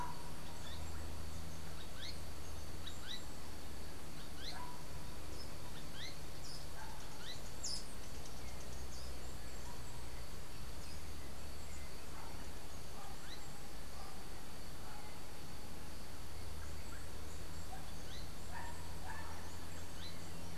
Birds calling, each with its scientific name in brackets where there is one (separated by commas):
Azara's Spinetail (Synallaxis azarae)